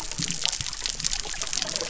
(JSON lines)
{"label": "biophony", "recorder": "SoundTrap 300"}